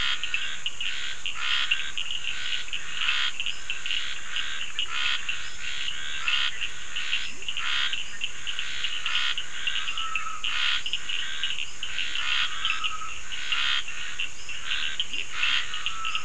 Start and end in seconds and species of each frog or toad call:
0.0	15.6	Scinax perereca
0.0	16.2	Sphaenorhynchus surdus
7.2	7.5	Leptodactylus latrans
8.0	8.4	Boana bischoffi
15.1	15.4	Leptodactylus latrans
9:15pm

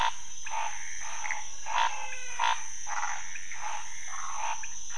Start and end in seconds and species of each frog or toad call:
0.0	4.9	Pithecopus azureus
0.0	4.9	Scinax fuscovarius
1.3	2.8	Physalaemus albonotatus
2.8	4.6	Phyllomedusa sauvagii
2:30am

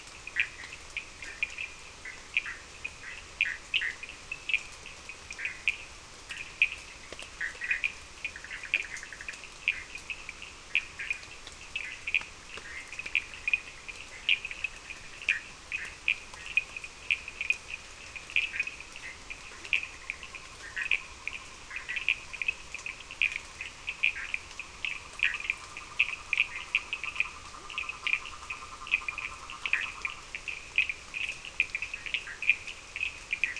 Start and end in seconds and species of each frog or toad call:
0.0	33.5	Sphaenorhynchus surdus
0.3	4.0	Boana bischoffi
5.3	7.9	Boana bischoffi
10.9	13.0	Boana bischoffi
15.3	15.9	Boana bischoffi
18.5	25.4	Boana bischoffi
25.0	30.3	Rhinella icterica
29.7	32.4	Boana bischoffi
5:30am

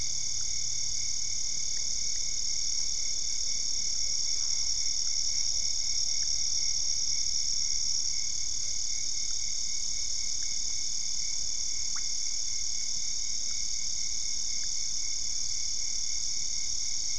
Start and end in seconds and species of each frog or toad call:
4.3	4.9	Boana albopunctata
9:30pm

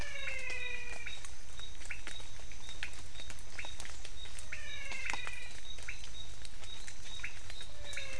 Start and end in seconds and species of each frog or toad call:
0.0	1.4	Physalaemus albonotatus
0.0	8.1	Leptodactylus podicipinus
4.2	6.1	Physalaemus albonotatus
6:00pm

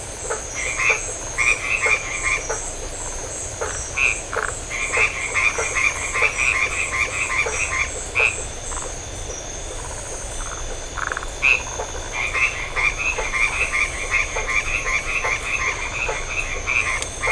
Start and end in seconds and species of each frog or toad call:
0.0	8.4	Boana faber
0.4	2.8	Boana albomarginata
3.6	4.6	Phyllomedusa distincta
4.0	8.6	Boana albomarginata
10.3	11.3	Phyllomedusa distincta
11.3	17.3	Boana albomarginata
11.3	17.3	Boana faber
8:15pm

